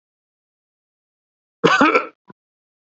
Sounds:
Sneeze